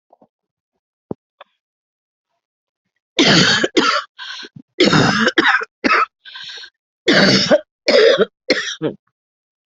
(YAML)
expert_labels:
- quality: ok
  cough_type: dry
  dyspnea: false
  wheezing: false
  stridor: false
  choking: false
  congestion: false
  nothing: true
  diagnosis: COVID-19
  severity: mild